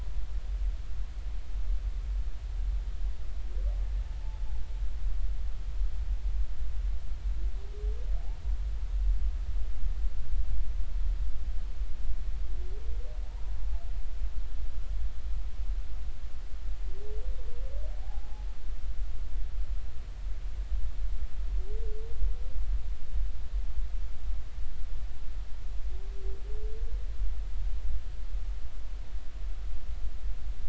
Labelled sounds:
4.2	4.5	humpback whale, 0.83 to 0.93 kHz
18.0	18.5	humpback whale, 0.80 to 0.90 kHz

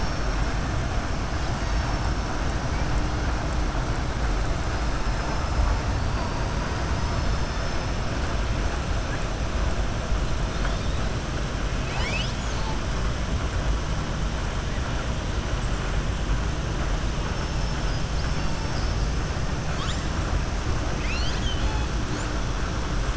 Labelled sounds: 11.7	12.8	killer whale, southern resident, 0.91 to 7.7 kHz
17.5	19.0	killer whale, southern resident, 4.4 to 5.5 kHz

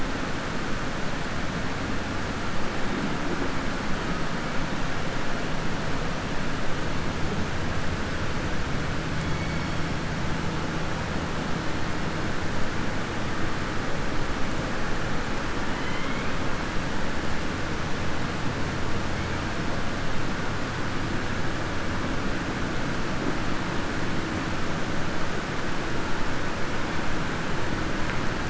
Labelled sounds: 15.7	16.3	killer whale, southern resident, 1.1 to 3.3 kHz

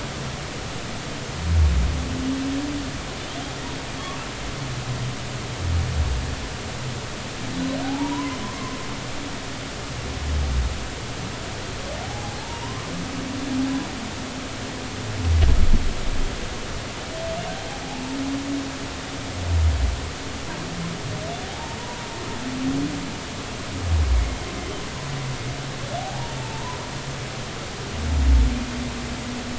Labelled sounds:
7.8	8.8	humpback whale, 0.80 to 1.1 kHz
12.0	12.9	humpback whale, 0.80 to 1.2 kHz
21.5	21.8	humpback whale, 0.80 to 0.99 kHz
26.0	26.8	humpback whale, 0.80 to 1.1 kHz

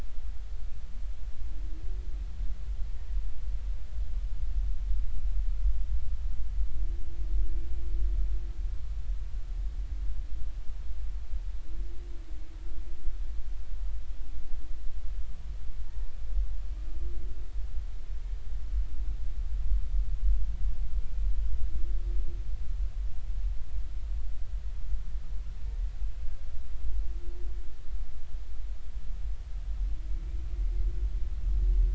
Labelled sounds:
15.8	16.2	humpback whale, 0.90 to 1.1 kHz

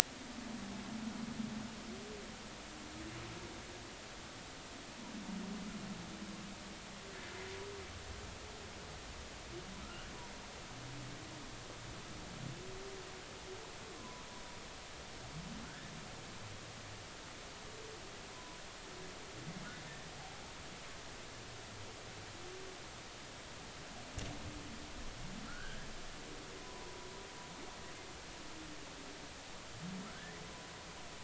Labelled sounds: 9.8	10.1	humpback whale, 1.2 to 1.6 kHz
14.0	14.2	humpback whale, 0.96 to 1.1 kHz
15.6	15.9	humpback whale, 1.4 to 1.8 kHz
18.3	18.6	humpback whale, 0.96 to 1.1 kHz
25.5	25.9	humpback whale, 1.3 to 1.7 kHz
26.6	27.1	humpback whale, 0.90 to 1.1 kHz

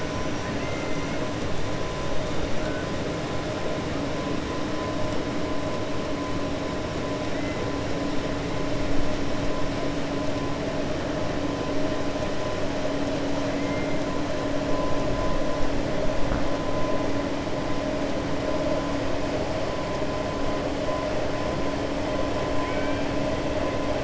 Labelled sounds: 0.5	1.1	killer whale, 1.4 to 2.8 kHz
22.5	23.0	killer whale, 1.5 to 3.2 kHz

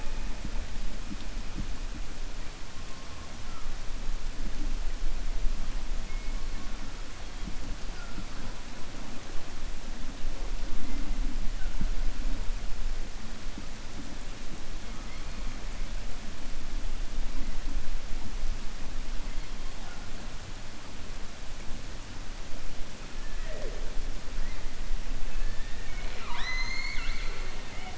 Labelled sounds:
25.5	27.9	killer whale, 0.55 to 7.0 kHz

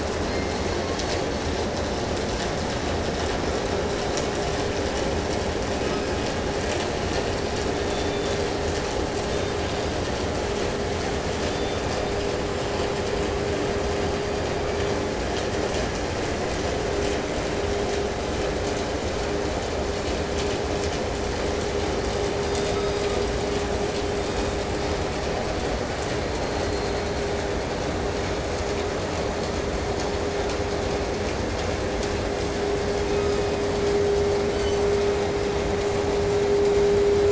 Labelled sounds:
0.0	1.6	killer whale, 1.5 to 4.8 kHz
5.4	6.8	killer whale, southern resident, 0.96 to 5.7 kHz
7.4	8.6	killer whale, southern resident, 2.2 to 5.0 kHz
9.2	10.3	killer whale, southern resident, 2.7 to 5.1 kHz
11.1	12.4	killer whale, southern resident, 2.1 to 8.0 kHz
13.8	15.2	killer whale, 1.0 to 6.1 kHz
22.2	23.5	killer whale, southern resident, 0.99 to 5.8 kHz
23.9	24.7	killer whale, 0.92 to 8.0 kHz
24.0	24.7	killer whale, southern resident, 0.78 to 4.8 kHz
26.0	27.4	killer whale, southern resident, 1.3 to 4.6 kHz
32.8	33.8	killer whale, southern resident, 0.97 to 5.9 kHz
34.4	35.3	killer whale, 1.0 to 7.9 kHz

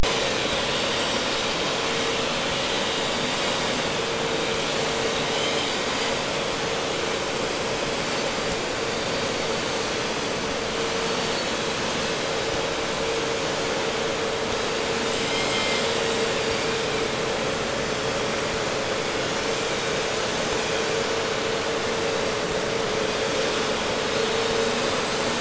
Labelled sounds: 4.8	6.2	vessel noise, 2.2 to 4.6 kHz
15.0	16.3	vessel noise, 1.7 to 7.9 kHz

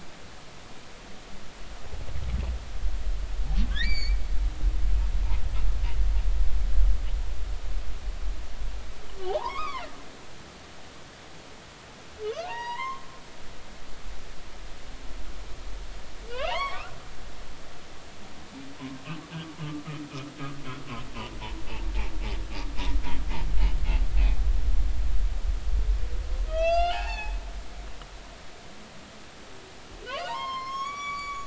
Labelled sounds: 3.7	4.2	humpback whale, 1.5 to 7.0 kHz
9.3	9.9	humpback whale, 0.80 to 2.6 kHz
12.5	13.1	humpback whale, 0.80 to 5.8 kHz
16.3	17.0	humpback whale, 0.80 to 3.5 kHz
26.5	27.4	humpback whale, 0.80 to 7.7 kHz
30.0	31.4	humpback whale, 0.86 to 8.0 kHz

